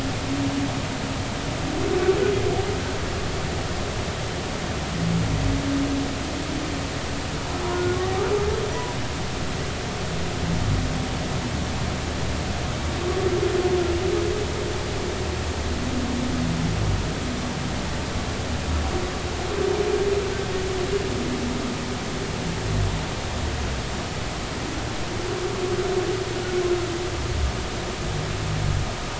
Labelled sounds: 7.7	8.0	humpback whale, 1.4 to 1.5 kHz

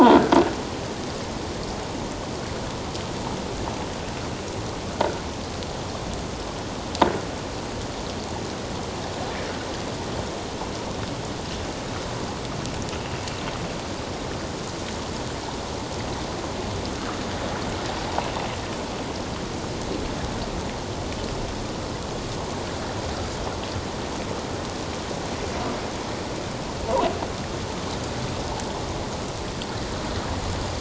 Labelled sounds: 0.0	0.3	croaking sound likely from a nearby submerged object, 1.3 to 1.7 kHz

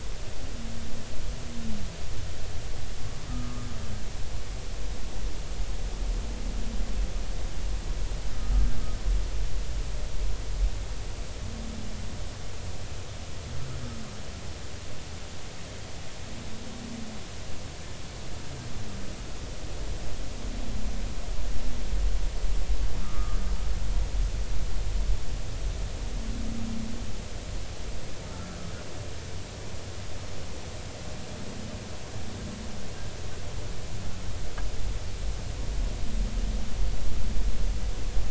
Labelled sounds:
3.3	3.7	humpback whale, 1.2 to 1.4 kHz
8.3	8.7	humpback whale, 1.2 to 1.3 kHz
23.0	23.4	humpback whale, 1.1 to 1.4 kHz
28.3	28.6	humpback whale, 1.3 to 1.6 kHz

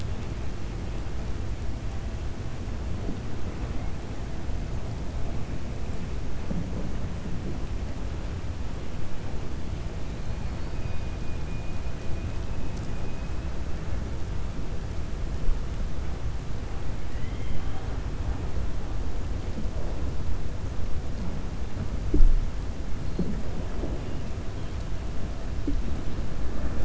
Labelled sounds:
17.0	17.9	killer whale, 0.75 to 3.3 kHz

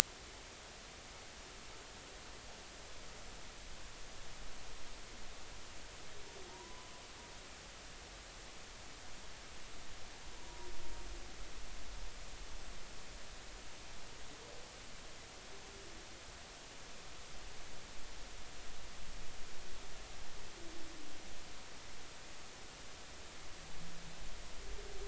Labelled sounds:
6.5	6.9	humpback whale, 0.86 to 1.1 kHz
10.4	10.7	humpback whale, 0.90 to 1.0 kHz

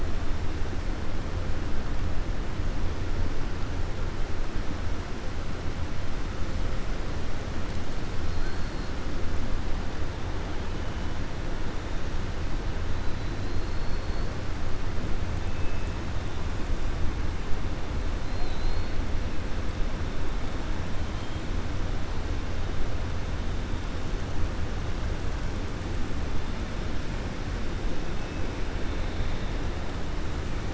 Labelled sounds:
13.4	14.3	killer whale, 4.0 to 4.5 kHz
18.2	18.9	killer whale, 3.6 to 4.4 kHz

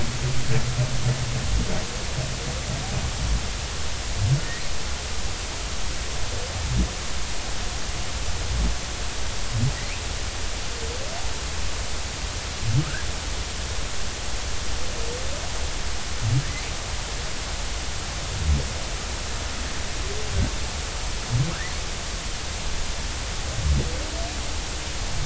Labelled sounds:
12.8	13.1	humpback whale, 1.2 to 1.8 kHz

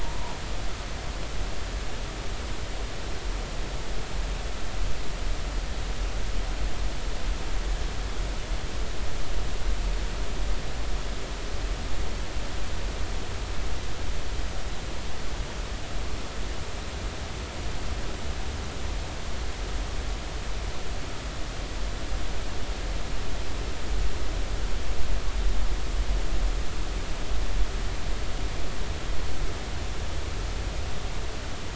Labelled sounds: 0.0	0.3	humpback whale, 0.83 to 1.1 kHz

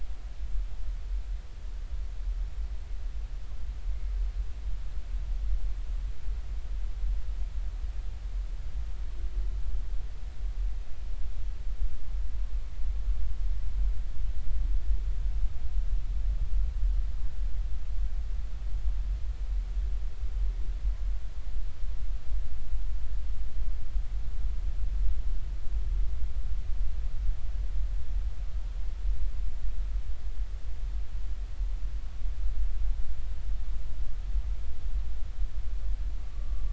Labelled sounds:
36.3	36.6	humpback whale, 1.1 to 1.2 kHz

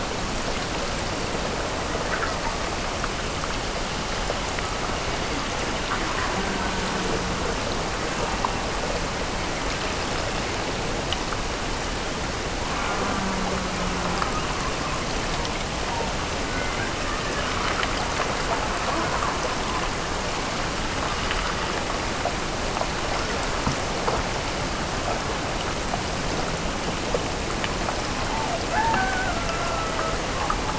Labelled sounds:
28.3	30.3	killer whale, Bigg's (transient), Gulf of Alaska transient, 0.38 to 1.7 kHz

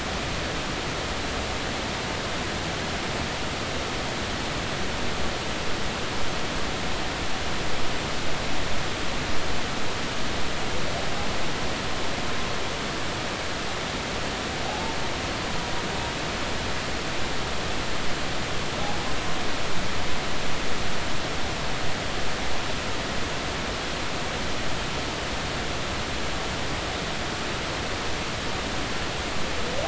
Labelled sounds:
14.7	15.0	humpback whale, 0.80 to 0.96 kHz

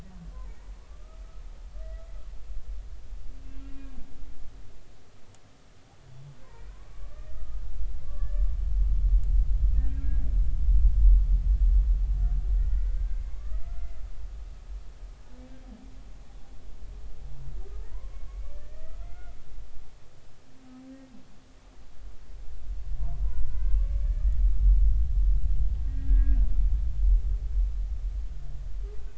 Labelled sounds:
0.9	1.4	humpback whale, 1.1 to 1.4 kHz
3.4	3.9	humpback whale, 2.6 to 2.8 kHz
6.4	7.6	humpback whale, 0.86 to 2.5 kHz
8.0	8.5	humpback whale, 1.0 to 1.8 kHz
9.8	10.2	humpback whale, 1.5 to 1.7 kHz
12.6	14.0	humpback whale, 1.0 to 2.2 kHz
17.9	19.4	humpback whale, 0.93 to 2.4 kHz
23.4	24.1	humpback whale, 0.96 to 2.3 kHz
25.9	26.4	humpback whale, 1.6 to 2.0 kHz

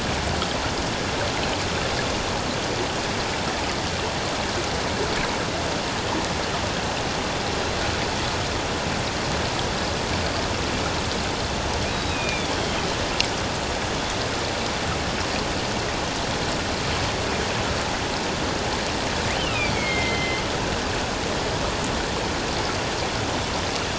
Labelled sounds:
11.9	12.9	killer whale, northern resident, A clan, AA subclan, call N04, 2.2 to 4.0 kHz
19.4	20.4	killer whale, northern resident, A clan, AA subclan, call N04, 2.0 to 3.2 kHz

